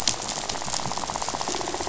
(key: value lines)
label: biophony, rattle
recorder: SoundTrap 500

label: biophony
recorder: SoundTrap 500